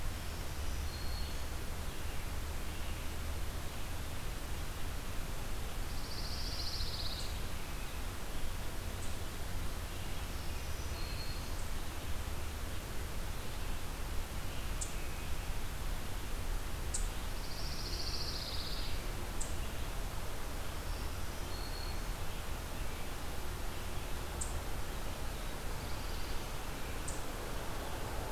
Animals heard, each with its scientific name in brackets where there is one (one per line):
Pine Warbler (Setophaga pinus)
Black-throated Blue Warbler (Setophaga caerulescens)
Eastern Chipmunk (Tamias striatus)
Black-throated Green Warbler (Setophaga virens)
American Robin (Turdus migratorius)